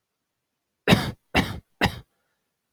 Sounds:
Cough